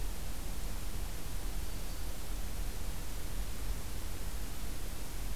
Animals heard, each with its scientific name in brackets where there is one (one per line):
Black-throated Green Warbler (Setophaga virens)